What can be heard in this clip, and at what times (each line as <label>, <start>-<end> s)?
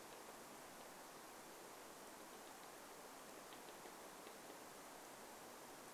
woodpecker drumming, 0-6 s